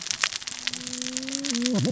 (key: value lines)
label: biophony, cascading saw
recorder: SoundTrap 600 or HydroMoth